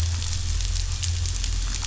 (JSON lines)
{"label": "anthrophony, boat engine", "recorder": "SoundTrap 500"}